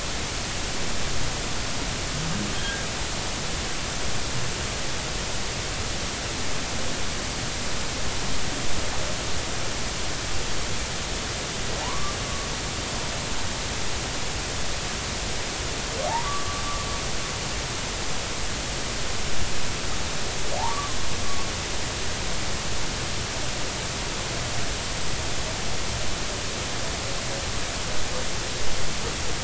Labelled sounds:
2.5	2.8	humpback whale, 1.5 to 1.7 kHz
11.8	12.2	humpback whale, 0.80 to 1.2 kHz
16.2	16.6	humpback whale, 1.1 to 1.2 kHz
20.6	21.0	humpback whale, 0.80 to 1.2 kHz

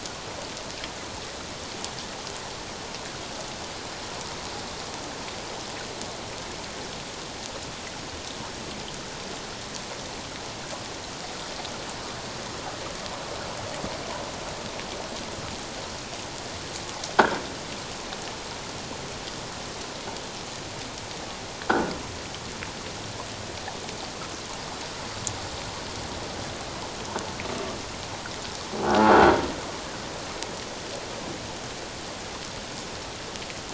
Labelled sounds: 21.7	21.9	croaking sound likely from a nearby submerged object, 1.3 to 1.7 kHz
28.9	29.1	croaking sound likely from a nearby submerged object, 1.3 to 1.5 kHz

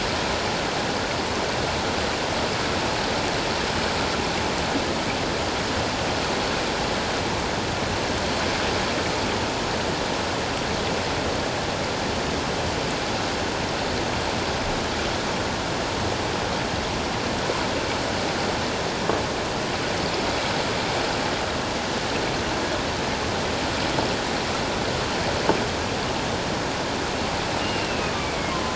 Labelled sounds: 27.6	28.7	killer whale, northern resident, A clan, AA subclan, call N04, 1.0 to 2.9 kHz

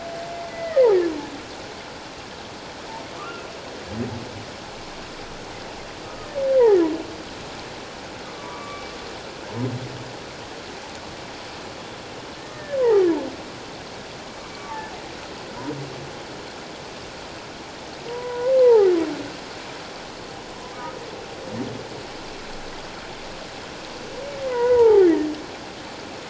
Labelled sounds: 0.3	0.8	humpback whale, 1.8 to 2.2 kHz
3.2	3.4	humpback whale, 1.1 to 1.5 kHz
6.0	6.3	humpback whale, 1.2 to 1.3 kHz
8.2	8.9	humpback whale, 1.1 to 1.3 kHz
12.5	13.1	humpback whale, 0.78 to 2.0 kHz
14.5	14.8	humpback whale, 1.1 to 1.2 kHz
18.1	18.9	humpback whale, 0.78 to 1.1 kHz
24.5	25.1	humpback whale, 0.78 to 2.1 kHz

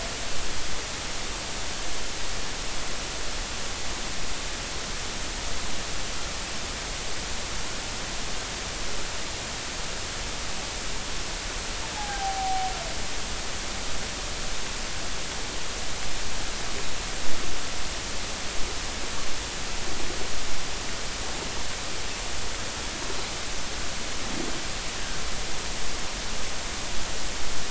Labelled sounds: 11.9	12.7	humpback whale, 0.80 to 0.99 kHz

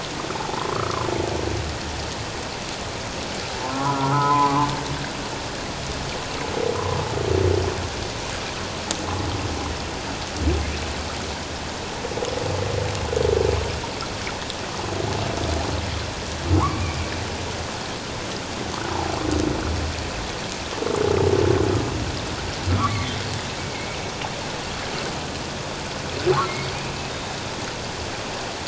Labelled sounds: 0.3	1.1	humpback whale, 0.78 to 1.4 kHz
3.6	4.7	humpback whale, 0.81 to 1.5 kHz
16.5	17.0	humpback whale, 0.81 to 2.5 kHz
22.8	23.2	humpback whale, 1.0 to 2.4 kHz
23.6	24.0	humpback whale, 2.1 to 2.4 kHz
26.5	27.4	humpback whale, 2.1 to 3.7 kHz

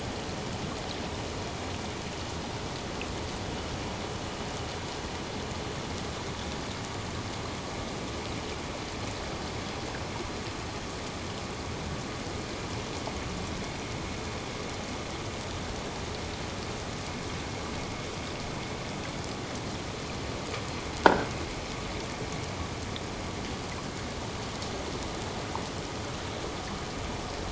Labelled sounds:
21.0	21.3	croaking sound likely from a nearby submerged object, 1.3 to 1.7 kHz

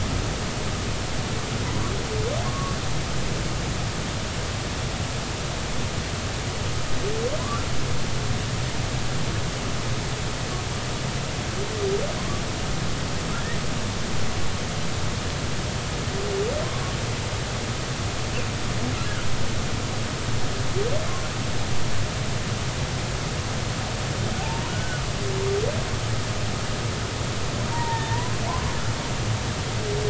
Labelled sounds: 2.4	2.8	humpback whale, 0.99 to 1.2 kHz
7.4	7.7	humpback whale, 0.96 to 1.4 kHz
12.2	12.4	humpback whale, 0.96 to 1.2 kHz
24.7	25.0	humpback whale, 1.4 to 1.6 kHz
27.7	28.4	humpback whale, 0.83 to 2.0 kHz

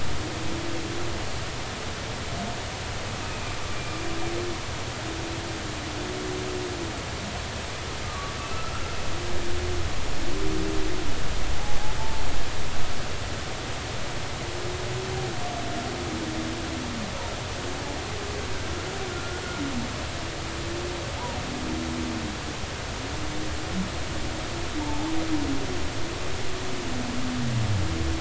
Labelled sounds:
3.7	4.0	humpback whale, 2.3 to 2.5 kHz
8.0	8.4	humpback whale, 1.1 to 1.2 kHz
11.5	12.2	humpback whale, 0.80 to 0.96 kHz
19.1	19.4	humpback whale, 1.3 to 1.5 kHz
24.8	25.2	humpback whale, 0.80 to 1.1 kHz

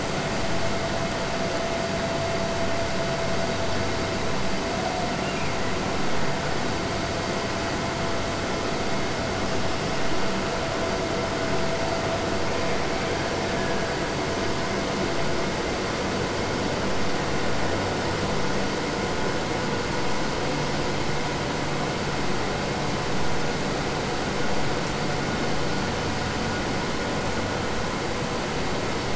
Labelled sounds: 5.1	5.8	killer whale, Bigg's (transient), Gulf of Alaska transient, 1.7 to 3.0 kHz

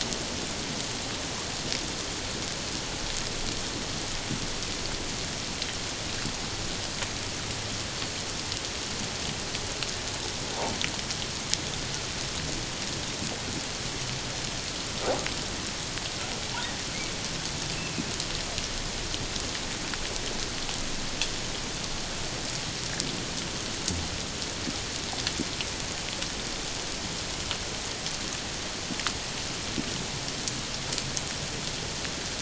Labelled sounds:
17.8	18.0	humpback whale, 2.4 to 2.7 kHz

